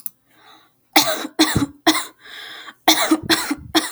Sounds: Cough